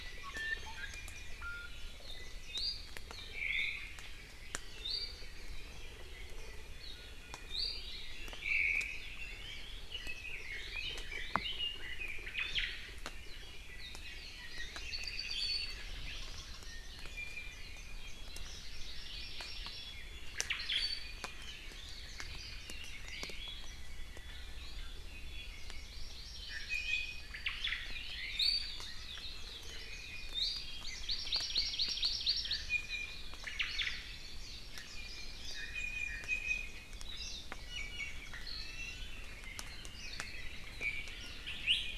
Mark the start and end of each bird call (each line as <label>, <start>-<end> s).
Iiwi (Drepanis coccinea), 0.2-1.7 s
Iiwi (Drepanis coccinea), 2.5-2.9 s
Omao (Myadestes obscurus), 3.3-4.0 s
Iiwi (Drepanis coccinea), 3.5-3.9 s
Iiwi (Drepanis coccinea), 4.8-5.3 s
Iiwi (Drepanis coccinea), 7.5-8.6 s
Omao (Myadestes obscurus), 8.4-9.0 s
Red-billed Leiothrix (Leiothrix lutea), 9.2-12.2 s
Omao (Myadestes obscurus), 12.3-12.8 s
Apapane (Himatione sanguinea), 14.8-15.9 s
Iiwi (Drepanis coccinea), 17.0-18.1 s
Hawaii Amakihi (Chlorodrepanis virens), 18.5-20.0 s
Omao (Myadestes obscurus), 20.3-21.0 s
Iiwi (Drepanis coccinea), 20.8-21.2 s
Warbling White-eye (Zosterops japonicus), 21.2-23.3 s
Iiwi (Drepanis coccinea), 23.0-23.8 s
Hawaii Amakihi (Chlorodrepanis virens), 25.6-27.3 s
Iiwi (Drepanis coccinea), 26.5-27.4 s
Omao (Myadestes obscurus), 27.4-28.8 s
Iiwi (Drepanis coccinea), 28.3-28.9 s
Warbling White-eye (Zosterops japonicus), 28.9-30.3 s
Iiwi (Drepanis coccinea), 29.7-30.6 s
Hawaii Amakihi (Chlorodrepanis virens), 30.8-32.6 s
Iiwi (Drepanis coccinea), 32.7-33.4 s
Omao (Myadestes obscurus), 33.4-34.0 s
Warbling White-eye (Zosterops japonicus), 34.2-35.7 s
Iiwi (Drepanis coccinea), 34.9-36.9 s
Iiwi (Drepanis coccinea), 37.6-39.3 s
Iiwi (Drepanis coccinea), 40.7-41.1 s
Iiwi (Drepanis coccinea), 41.6-41.8 s